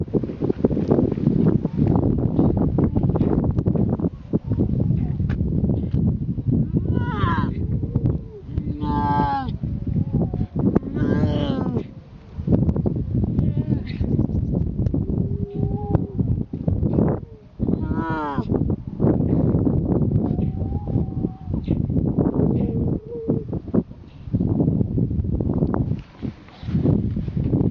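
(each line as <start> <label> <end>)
0.0 Wind blows steadily and loudly outdoors. 27.7
6.8 A seal howls loudly nearby. 7.5
8.6 A seal howls loudly nearby. 9.5
10.7 A seal howls loudly nearby. 12.1
13.3 A seal howls loudly nearby. 13.9
15.0 Whales are sirening repeatedly in the distance. 16.8
17.5 A seal howls loudly nearby. 18.4
20.1 Whales are sirening repeatedly in the distance. 25.5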